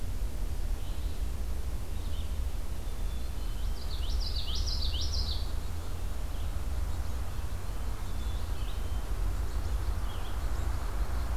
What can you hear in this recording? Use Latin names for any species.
Vireo olivaceus, Poecile atricapillus, Geothlypis trichas